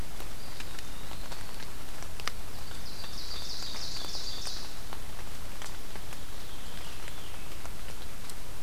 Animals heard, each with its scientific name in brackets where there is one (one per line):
Ovenbird (Seiurus aurocapilla)
Eastern Wood-Pewee (Contopus virens)
Veery (Catharus fuscescens)